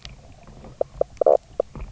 {"label": "biophony, knock croak", "recorder": "SoundTrap 300"}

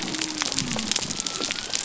{"label": "biophony", "recorder": "SoundTrap 300"}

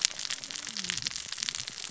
{"label": "biophony, cascading saw", "recorder": "SoundTrap 600 or HydroMoth"}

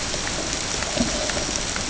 {"label": "ambient", "recorder": "HydroMoth"}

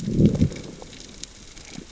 {"label": "biophony, growl", "recorder": "SoundTrap 600 or HydroMoth"}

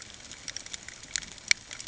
{"label": "ambient", "recorder": "HydroMoth"}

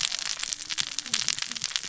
{"label": "biophony, cascading saw", "recorder": "SoundTrap 600 or HydroMoth"}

